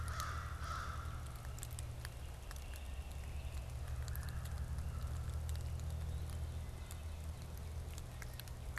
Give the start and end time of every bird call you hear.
[0.00, 1.63] American Crow (Corvus brachyrhynchos)
[3.93, 4.73] Red-bellied Woodpecker (Melanerpes carolinus)
[5.73, 6.63] Blue-headed Vireo (Vireo solitarius)

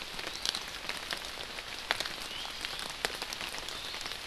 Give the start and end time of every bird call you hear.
[2.20, 2.60] Iiwi (Drepanis coccinea)

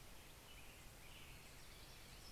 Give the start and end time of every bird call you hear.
[0.00, 2.32] American Robin (Turdus migratorius)
[0.00, 2.32] Hermit Warbler (Setophaga occidentalis)

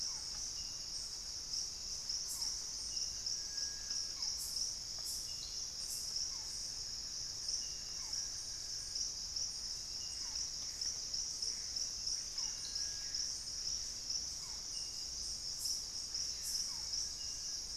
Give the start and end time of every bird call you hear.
[0.00, 0.59] Thrush-like Wren (Campylorhynchus turdinus)
[0.00, 17.76] Barred Forest-Falcon (Micrastur ruficollis)
[5.59, 9.29] Buff-throated Woodcreeper (Xiphorhynchus guttatus)
[9.99, 12.79] Gray Antbird (Cercomacra cinerascens)
[10.99, 11.79] Amazonian Motmot (Momotus momota)
[12.09, 17.76] Screaming Piha (Lipaugus vociferans)

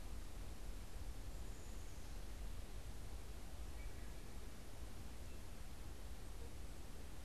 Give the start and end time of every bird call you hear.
[3.50, 4.20] Wood Thrush (Hylocichla mustelina)

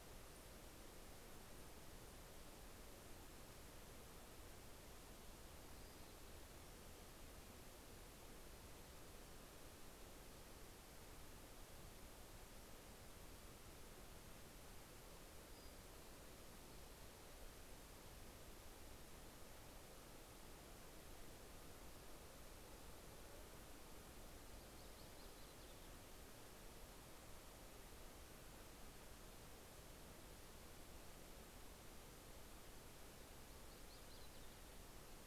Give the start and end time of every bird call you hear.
[5.28, 6.98] Pacific-slope Flycatcher (Empidonax difficilis)
[14.58, 16.78] Pacific-slope Flycatcher (Empidonax difficilis)
[23.98, 26.48] Yellow-rumped Warbler (Setophaga coronata)
[33.28, 35.18] Yellow-rumped Warbler (Setophaga coronata)

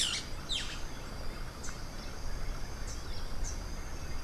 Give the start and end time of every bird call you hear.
[0.00, 1.02] Boat-billed Flycatcher (Megarynchus pitangua)
[2.72, 4.23] Rufous-capped Warbler (Basileuterus rufifrons)

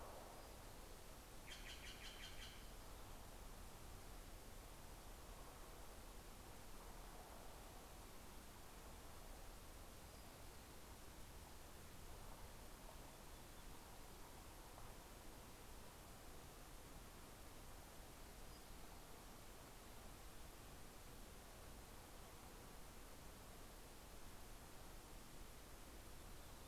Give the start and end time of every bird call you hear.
[1.41, 3.50] Steller's Jay (Cyanocitta stelleri)
[17.61, 20.20] Townsend's Warbler (Setophaga townsendi)

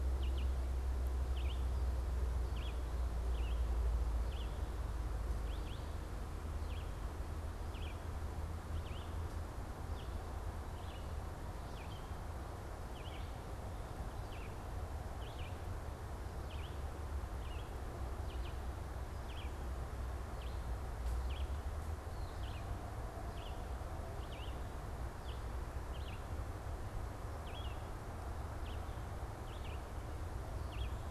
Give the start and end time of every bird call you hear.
[0.00, 31.06] Red-eyed Vireo (Vireo olivaceus)

